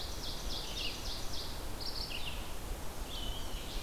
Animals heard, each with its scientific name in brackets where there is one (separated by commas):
Ovenbird (Seiurus aurocapilla), Red-eyed Vireo (Vireo olivaceus), Black-throated Blue Warbler (Setophaga caerulescens), Black-and-white Warbler (Mniotilta varia)